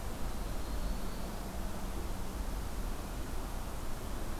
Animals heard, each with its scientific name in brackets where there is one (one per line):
Prairie Warbler (Setophaga discolor)